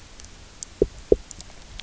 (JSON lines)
{"label": "biophony, knock", "recorder": "SoundTrap 300"}